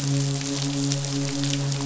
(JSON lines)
{"label": "biophony, midshipman", "recorder": "SoundTrap 500"}